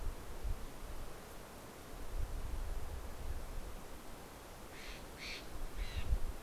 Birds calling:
Steller's Jay (Cyanocitta stelleri)

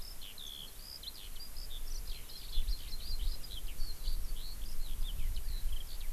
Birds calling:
Eurasian Skylark (Alauda arvensis)

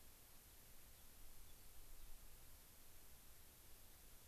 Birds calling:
Gray-crowned Rosy-Finch (Leucosticte tephrocotis)

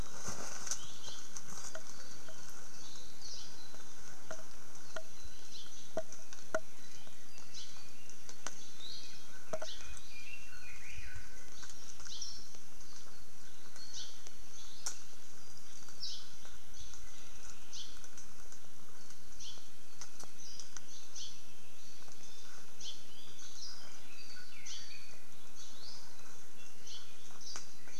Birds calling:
Warbling White-eye (Zosterops japonicus)
Apapane (Himatione sanguinea)
Hawaii Creeper (Loxops mana)

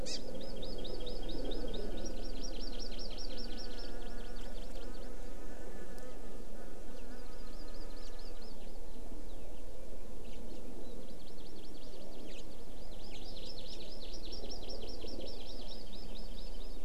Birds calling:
House Finch (Haemorhous mexicanus)
Hawaii Amakihi (Chlorodrepanis virens)

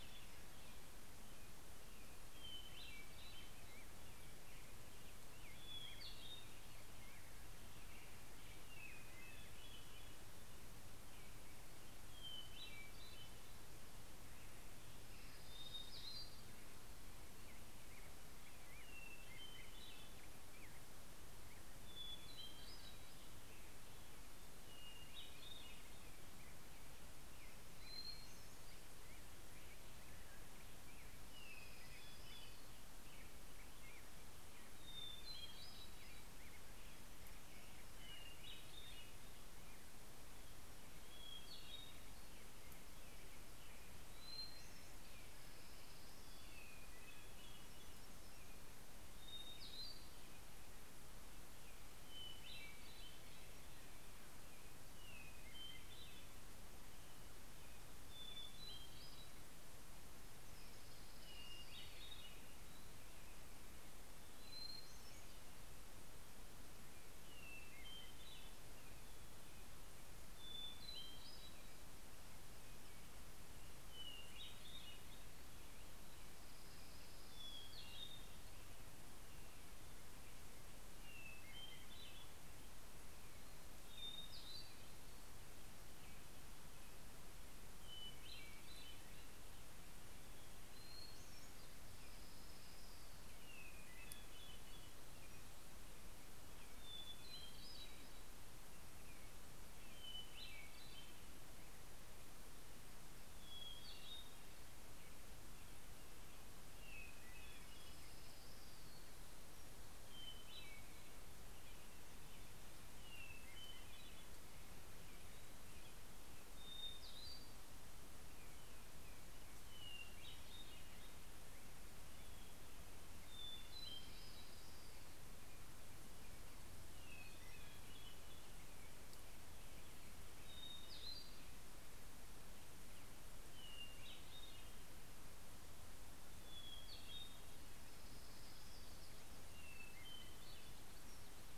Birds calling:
Hermit Warbler (Setophaga occidentalis)
Hermit Thrush (Catharus guttatus)
Orange-crowned Warbler (Leiothlypis celata)
Black-headed Grosbeak (Pheucticus melanocephalus)

